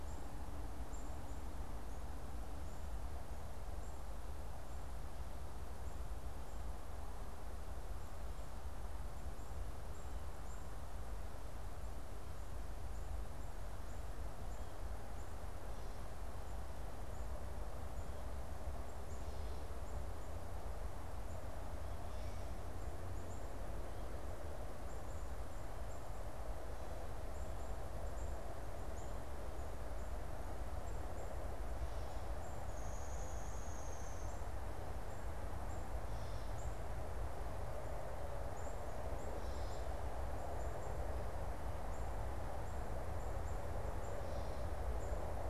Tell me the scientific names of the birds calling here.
Poecile atricapillus, Dryobates pubescens